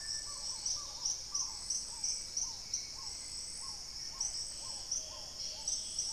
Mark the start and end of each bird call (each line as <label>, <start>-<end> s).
Black-tailed Trogon (Trogon melanurus), 0.0-6.1 s
Hauxwell's Thrush (Turdus hauxwelli), 0.0-6.1 s
Paradise Tanager (Tangara chilensis), 0.0-6.1 s
Plumbeous Pigeon (Patagioenas plumbea), 0.0-6.1 s
Dusky-capped Greenlet (Pachysylvia hypoxantha), 0.4-1.4 s
Dusky-throated Antshrike (Thamnomanes ardesiacus), 4.0-6.1 s
unidentified bird, 5.0-6.1 s